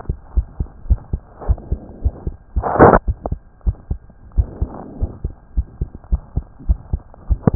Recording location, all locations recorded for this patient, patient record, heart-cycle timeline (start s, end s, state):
pulmonary valve (PV)
aortic valve (AV)+pulmonary valve (PV)+tricuspid valve (TV)+mitral valve (MV)
#Age: Child
#Sex: Female
#Height: 121.0 cm
#Weight: 21.9 kg
#Pregnancy status: False
#Murmur: Present
#Murmur locations: tricuspid valve (TV)
#Most audible location: tricuspid valve (TV)
#Systolic murmur timing: Early-systolic
#Systolic murmur shape: Plateau
#Systolic murmur grading: I/VI
#Systolic murmur pitch: Low
#Systolic murmur quality: Harsh
#Diastolic murmur timing: nan
#Diastolic murmur shape: nan
#Diastolic murmur grading: nan
#Diastolic murmur pitch: nan
#Diastolic murmur quality: nan
#Outcome: Abnormal
#Campaign: 2015 screening campaign
0.00	3.05	unannotated
3.05	3.16	S1
3.16	3.28	systole
3.28	3.38	S2
3.38	3.60	diastole
3.60	3.76	S1
3.76	3.87	systole
3.87	3.98	S2
3.98	4.34	diastole
4.34	4.48	S1
4.48	4.59	systole
4.59	4.72	S2
4.72	4.97	diastole
4.97	5.12	S1
5.12	5.20	systole
5.20	5.32	S2
5.32	5.52	diastole
5.52	5.68	S1
5.68	5.77	systole
5.77	5.90	S2
5.90	6.07	diastole
6.07	6.22	S1
6.22	6.33	systole
6.33	6.46	S2
6.46	6.64	diastole
6.64	6.78	S1
6.78	6.91	systole
6.91	7.02	S2
7.02	7.26	diastole
7.26	7.40	S1
7.40	7.55	unannotated